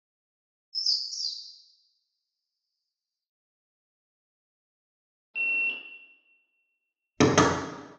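First, chirping can be heard. Next, there is beeping. After that, you can hear knocking.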